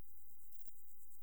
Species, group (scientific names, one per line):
Poecilimon chopardi
Orthoptera